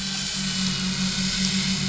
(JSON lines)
{"label": "anthrophony, boat engine", "recorder": "SoundTrap 500"}